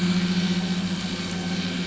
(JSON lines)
{"label": "anthrophony, boat engine", "recorder": "SoundTrap 500"}